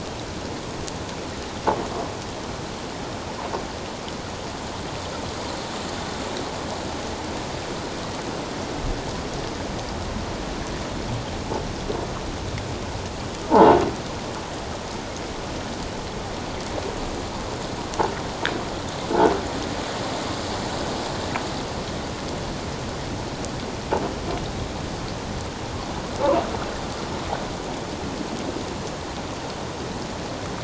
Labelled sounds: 13.5	13.7	croaking sound likely from a nearby submerged object, 0.78 to 1.1 kHz

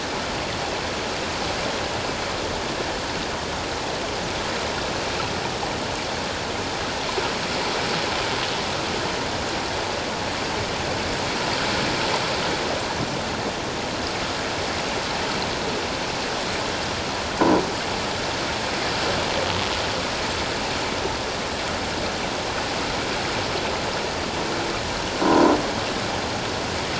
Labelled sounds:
25.2	25.5	croaking sound likely from a nearby submerged object, 0.91 to 1.1 kHz

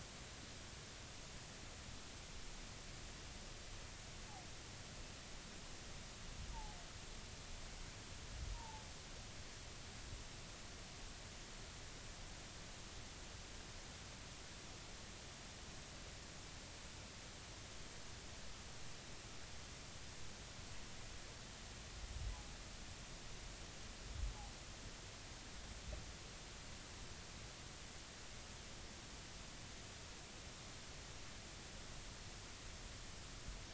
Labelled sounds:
8.5	8.8	humpback whale, 0.80 to 1.0 kHz

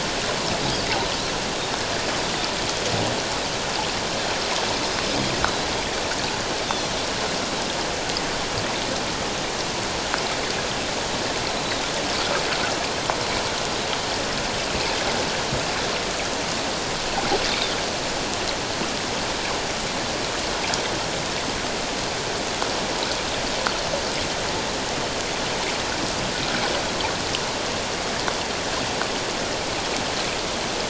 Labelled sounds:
5.4	5.7	Pacific white-sided dolphin, 3.8 to 4.1 kHz
17.5	17.8	Pacific white-sided dolphin, 3.3 to 3.9 kHz

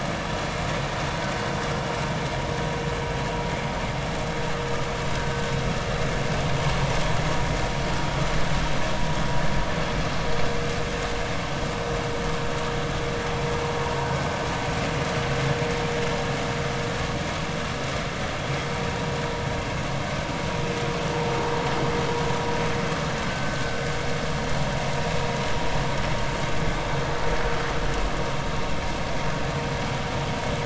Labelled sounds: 23.3	23.7	vessel noise, 1.5 to 1.6 kHz

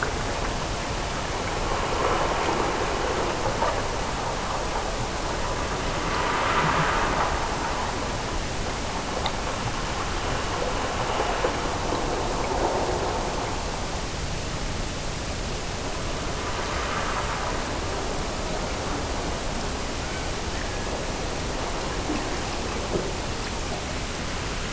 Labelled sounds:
20.0	21.3	killer whale, Bigg's (transient), Gulf of Alaska transient, 1.5 to 2.4 kHz

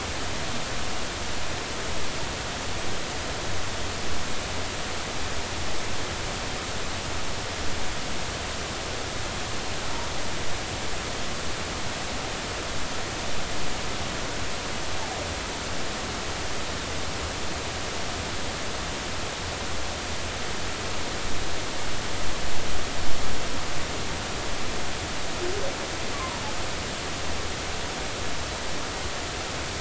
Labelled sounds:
26.1	26.4	humpback whale, 0.93 to 1.2 kHz

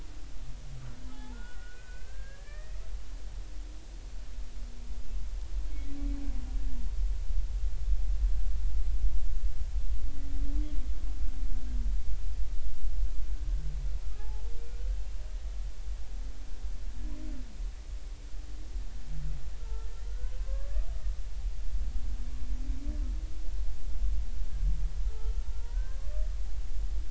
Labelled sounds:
1.1	2.8	humpback whale, 0.80 to 2.7 kHz
14.2	14.4	humpback whale, 0.80 to 0.93 kHz
19.6	20.9	humpback whale, 0.99 to 1.7 kHz
25.5	26.0	humpback whale, 0.90 to 1.7 kHz

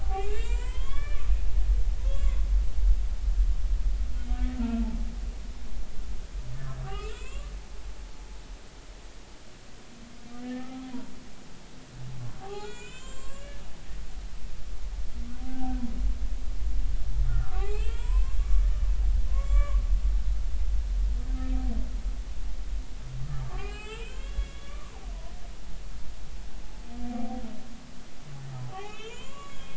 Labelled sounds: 0.0	1.2	humpback whale, 0.80 to 7.9 kHz
2.0	2.4	humpback whale, 0.93 to 7.4 kHz
4.2	4.9	humpback whale, 1.3 to 3.3 kHz
6.8	7.5	humpback whale, 0.96 to 3.2 kHz
10.4	10.9	humpback whale, 1.2 to 1.9 kHz
12.4	13.6	humpback whale, 0.80 to 7.8 kHz
15.4	15.8	humpback whale, 0.80 to 0.83 kHz
17.3	18.4	humpback whale, 0.80 to 3.5 kHz
19.3	19.8	humpback whale, 1.0 to 2.4 kHz
23.5	24.9	humpback whale, 0.80 to 3.5 kHz
27.1	27.4	humpback whale, 0.80 to 0.83 kHz
28.7	29.7	humpback whale, 0.80 to 7.4 kHz

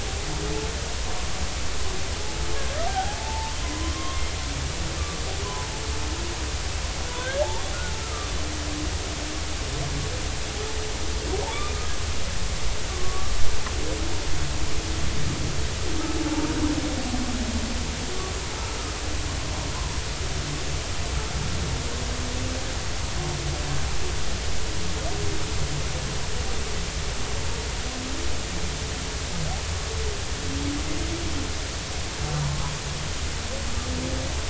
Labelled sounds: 2.9	4.2	humpback whale, 0.80 to 1.2 kHz
7.2	7.4	humpback whale, 1.4 to 1.7 kHz
11.5	11.8	humpback whale, 2.2 to 2.5 kHz
12.9	13.4	humpback whale, 1.1 to 1.2 kHz
32.4	32.7	humpback whale, 0.90 to 1.2 kHz

